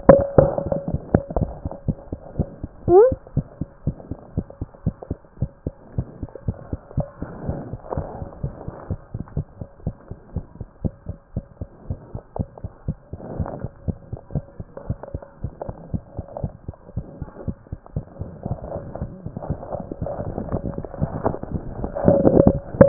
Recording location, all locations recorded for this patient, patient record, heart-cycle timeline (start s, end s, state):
mitral valve (MV)
aortic valve (AV)+mitral valve (MV)
#Age: Child
#Sex: Female
#Height: 35.0 cm
#Weight: 12.0 kg
#Pregnancy status: False
#Murmur: Absent
#Murmur locations: nan
#Most audible location: nan
#Systolic murmur timing: nan
#Systolic murmur shape: nan
#Systolic murmur grading: nan
#Systolic murmur pitch: nan
#Systolic murmur quality: nan
#Diastolic murmur timing: nan
#Diastolic murmur shape: nan
#Diastolic murmur grading: nan
#Diastolic murmur pitch: nan
#Diastolic murmur quality: nan
#Outcome: Normal
#Campaign: 2014 screening campaign
0.00	0.08	systole
0.08	0.22	S2
0.22	0.34	diastole
0.34	0.50	S1
0.50	0.64	systole
0.64	0.74	S2
0.74	0.88	diastole
0.88	1.00	S1
1.00	1.12	systole
1.12	1.22	S2
1.22	1.36	diastole
1.36	1.50	S1
1.50	1.64	systole
1.64	1.72	S2
1.72	1.86	diastole
1.86	1.96	S1
1.96	2.10	systole
2.10	2.20	S2
2.20	2.36	diastole
2.36	2.48	S1
2.48	2.62	systole
2.62	2.72	S2
2.72	2.88	diastole
2.88	3.10	S1
3.10	3.20	systole
3.20	3.24	S2
3.24	3.36	diastole
3.36	3.46	S1
3.46	3.60	systole
3.60	3.70	S2
3.70	3.86	diastole
3.86	3.96	S1
3.96	4.10	systole
4.10	4.20	S2
4.20	4.36	diastole
4.36	4.46	S1
4.46	4.60	systole
4.60	4.70	S2
4.70	4.86	diastole
4.86	4.96	S1
4.96	5.10	systole
5.10	5.20	S2
5.20	5.38	diastole
5.38	5.50	S1
5.50	5.66	systole
5.66	5.76	S2
5.76	5.94	diastole
5.94	6.06	S1
6.06	6.20	systole
6.20	6.30	S2
6.30	6.46	diastole
6.46	6.56	S1
6.56	6.70	systole
6.70	6.80	S2
6.80	6.96	diastole
6.96	7.06	S1
7.06	7.20	systole
7.20	7.30	S2
7.30	7.46	diastole
7.46	7.60	S1
7.60	7.72	systole
7.72	7.80	S2
7.80	7.96	diastole
7.96	8.08	S1
8.08	8.20	systole
8.20	8.28	S2
8.28	8.42	diastole
8.42	8.54	S1
8.54	8.66	systole
8.66	8.76	S2
8.76	8.90	diastole
8.90	9.00	S1
9.00	9.14	systole
9.14	9.22	S2
9.22	9.36	diastole
9.36	9.46	S1
9.46	9.60	systole
9.60	9.68	S2
9.68	9.84	diastole
9.84	9.94	S1
9.94	10.08	systole
10.08	10.18	S2
10.18	10.34	diastole
10.34	10.44	S1
10.44	10.58	systole
10.58	10.68	S2
10.68	10.84	diastole
10.84	10.94	S1
10.94	11.08	systole
11.08	11.18	S2
11.18	11.34	diastole
11.34	11.44	S1
11.44	11.60	systole
11.60	11.70	S2
11.70	11.86	diastole
11.86	11.98	S1
11.98	12.12	systole
12.12	12.22	S2
12.22	12.38	diastole
12.38	12.48	S1
12.48	12.62	systole
12.62	12.72	S2
12.72	12.88	diastole
12.88	12.98	S1
12.98	13.12	systole
13.12	13.20	S2
13.20	13.36	diastole
13.36	13.48	S1
13.48	13.62	systole
13.62	13.72	S2
13.72	13.86	diastole
13.86	13.96	S1
13.96	14.10	systole
14.10	14.20	S2
14.20	14.34	diastole
14.34	14.46	S1
14.46	14.60	systole
14.60	14.70	S2
14.70	14.86	diastole
14.86	14.98	S1
14.98	15.14	systole
15.14	15.24	S2
15.24	15.40	diastole
15.40	15.52	S1
15.52	15.66	systole
15.66	15.76	S2
15.76	15.92	diastole
15.92	16.02	S1
16.02	16.16	systole
16.16	16.26	S2
16.26	16.42	diastole
16.42	16.54	S1
16.54	16.68	systole
16.68	16.78	S2
16.78	16.94	diastole
16.94	17.06	S1
17.06	17.20	systole
17.20	17.30	S2
17.30	17.46	diastole
17.46	17.56	S1
17.56	17.70	systole
17.70	17.78	S2
17.78	17.94	diastole
17.94	18.06	S1
18.06	18.20	systole
18.20	18.30	S2
18.30	18.46	diastole
18.46	18.58	S1
18.58	18.74	systole
18.74	18.84	S2
18.84	19.00	diastole
19.00	19.12	S1
19.12	19.24	systole
19.24	19.34	S2
19.34	19.48	diastole
19.48	19.60	S1
19.60	19.74	systole
19.74	19.84	S2
19.84	20.00	diastole
20.00	20.12	S1
20.12	20.26	systole
20.26	20.36	S2
20.36	20.50	diastole
20.50	20.62	S1
20.62	20.76	systole
20.76	20.86	S2
20.86	21.00	diastole
21.00	21.12	S1
21.12	21.24	systole
21.24	21.36	S2
21.36	21.52	diastole
21.52	21.64	S1
21.64	21.78	systole
21.78	21.90	S2
21.90	22.06	diastole
22.06	22.24	S1
22.24	22.44	systole
22.44	22.60	S2
22.60	22.76	diastole
22.76	22.88	S1